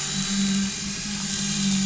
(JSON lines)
{"label": "anthrophony, boat engine", "recorder": "SoundTrap 500"}